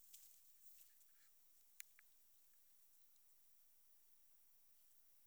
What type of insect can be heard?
orthopteran